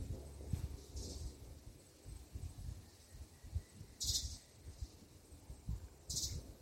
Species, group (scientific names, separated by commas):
Gymnotympana varicolor, Cicadidae